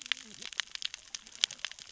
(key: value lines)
label: biophony, cascading saw
recorder: SoundTrap 600 or HydroMoth